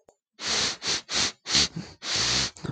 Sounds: Sniff